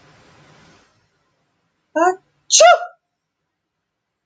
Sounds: Sneeze